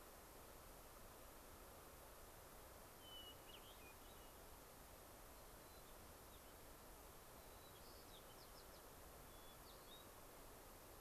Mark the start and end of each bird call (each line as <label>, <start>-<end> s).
Hermit Thrush (Catharus guttatus), 3.0-4.5 s
White-crowned Sparrow (Zonotrichia leucophrys), 5.4-6.6 s
White-crowned Sparrow (Zonotrichia leucophrys), 7.3-8.9 s
Hermit Thrush (Catharus guttatus), 9.2-10.2 s